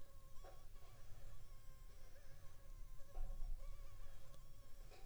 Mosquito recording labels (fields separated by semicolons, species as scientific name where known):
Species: Anopheles funestus s.s.; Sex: female; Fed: unfed; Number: one; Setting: cup